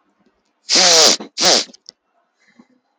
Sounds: Sniff